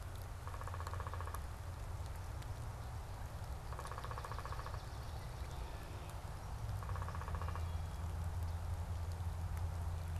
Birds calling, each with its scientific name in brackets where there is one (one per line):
Downy Woodpecker (Dryobates pubescens)
Swamp Sparrow (Melospiza georgiana)
Wood Thrush (Hylocichla mustelina)